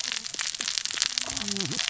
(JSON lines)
{"label": "biophony, cascading saw", "recorder": "SoundTrap 600 or HydroMoth"}